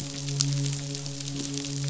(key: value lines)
label: biophony, midshipman
recorder: SoundTrap 500